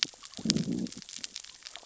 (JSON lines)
{"label": "biophony, growl", "recorder": "SoundTrap 600 or HydroMoth"}